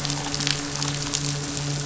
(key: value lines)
label: anthrophony, boat engine
recorder: SoundTrap 500